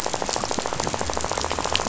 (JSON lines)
{"label": "biophony, rattle", "recorder": "SoundTrap 500"}